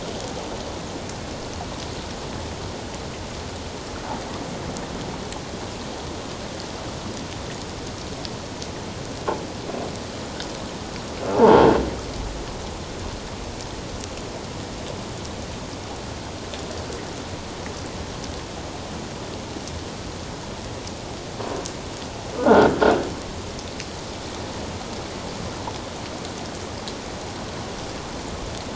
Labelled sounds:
11.3	11.6	croaking sound likely from a nearby submerged object, 0.81 to 1.1 kHz
22.4	22.7	croaking sound likely from a nearby submerged object, 1.3 to 1.7 kHz

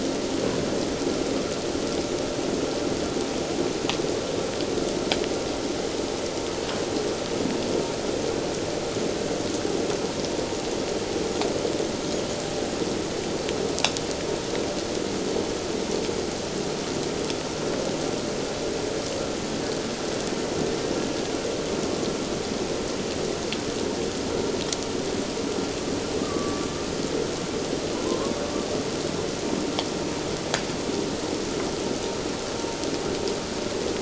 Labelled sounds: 26.2	26.7	killer whale, Bigg's (transient), 1.1 to 1.3 kHz
27.9	28.3	killer whale, Bigg's (transient), 0.91 to 1.2 kHz

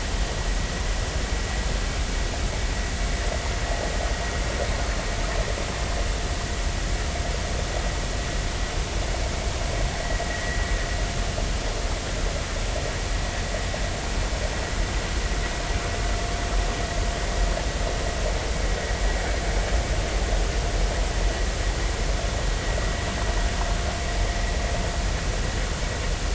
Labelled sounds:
10.3	10.6	vessel noise, 1.9 to 2.0 kHz

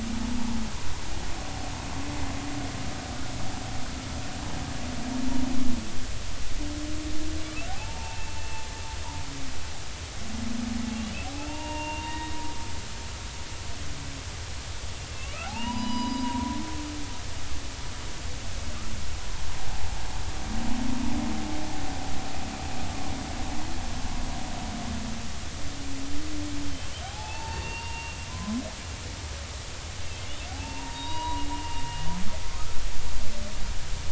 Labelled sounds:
7.7	8.6	humpback whale, 0.80 to 2.8 kHz
10.9	12.4	humpback whale, 0.86 to 3.8 kHz
15.1	16.6	humpback whale, 0.80 to 5.0 kHz
27.0	28.6	humpback whale, 0.80 to 4.6 kHz
30.5	31.8	humpback whale, 0.80 to 4.8 kHz

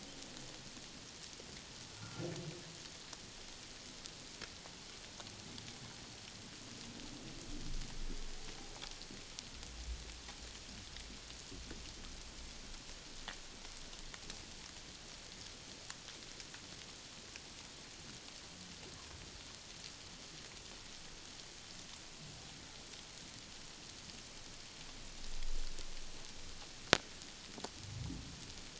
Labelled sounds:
2.0	2.2	humpback whale, 1.3 to 1.5 kHz

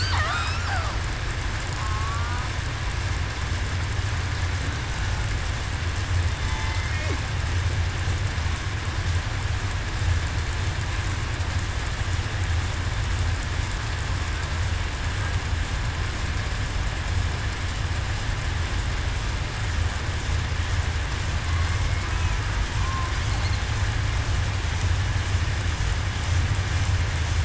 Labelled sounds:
6.4	7.1	killer whale, southern resident, 2.0 to 2.2 kHz

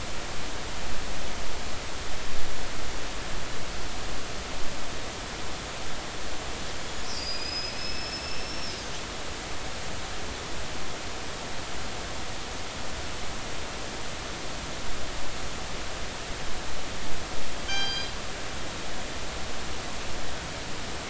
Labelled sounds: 7.1	8.7	killer whale, northern resident, G clan, 2.3 to 5.5 kHz
17.6	18.1	killer whale, northern resident, G clan, call N24ii, 1.5 to 6.6 kHz

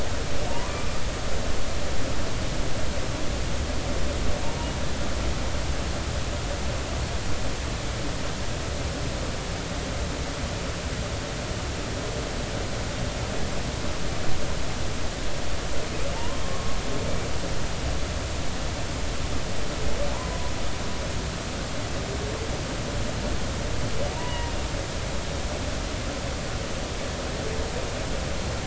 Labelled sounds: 0.5	0.9	humpback whale, 0.86 to 1.2 kHz
16.1	16.8	humpback whale, 0.83 to 1.2 kHz
24.1	24.6	humpback whale, 0.90 to 2.0 kHz

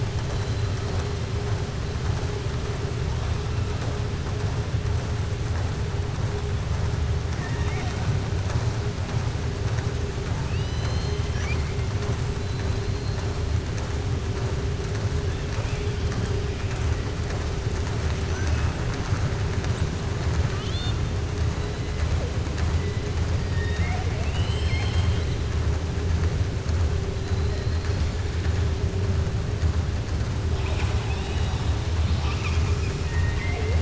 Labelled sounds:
7.3	8.0	killer whale, southern resident, 0.72 to 6.2 kHz
10.4	11.8	killer whale, southern resident, 1.6 to 6.3 kHz
18.3	18.7	killer whale, southern resident, 0.60 to 2.7 kHz
20.4	21.0	killer whale, southern resident, 1.2 to 4.3 kHz
23.4	25.4	killer whale, southern resident, 0.67 to 5.3 kHz
30.5	33.7	killer whale, southern resident, 0.44 to 7.4 kHz

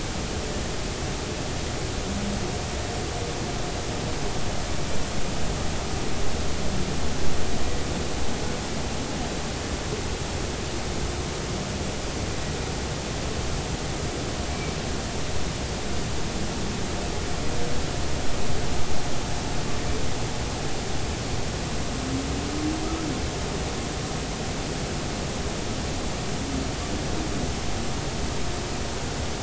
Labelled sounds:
14.5	14.8	humpback whale, 2.2 to 2.4 kHz

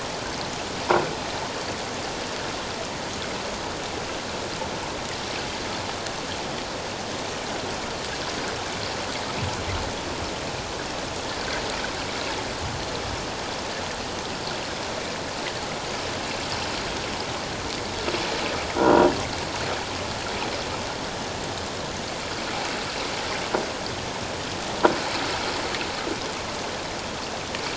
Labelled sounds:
18.8	19.1	croaking sound likely from a nearby submerged object, 1.3 to 1.5 kHz

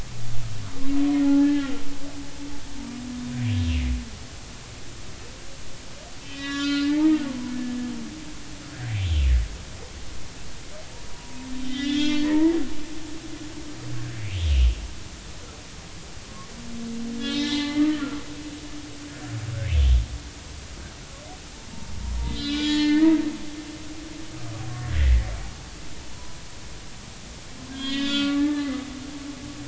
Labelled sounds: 1.2	1.7	humpback whale, 0.80 to 1.8 kHz
6.2	7.5	humpback whale, 0.83 to 4.3 kHz
11.1	12.5	humpback whale, 0.86 to 4.8 kHz
13.2	13.6	humpback whale, 1.8 to 2.0 kHz
17.2	18.2	humpback whale, 0.83 to 4.4 kHz
19.7	19.9	humpback whale, 2.9 to 3.2 kHz
22.2	23.2	humpback whale, 1.4 to 4.1 kHz
25.0	25.3	humpback whale, 1.8 to 2.2 kHz
27.7	28.7	humpback whale, 0.83 to 4.8 kHz
29.2	29.6	humpback whale, 1.1 to 1.2 kHz

